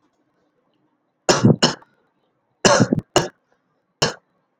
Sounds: Cough